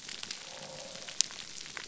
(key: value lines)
label: biophony
recorder: SoundTrap 300